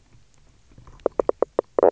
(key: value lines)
label: biophony, knock croak
recorder: SoundTrap 300